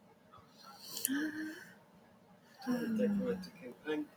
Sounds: Sigh